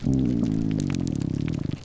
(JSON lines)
{"label": "biophony, grouper groan", "recorder": "SoundTrap 300"}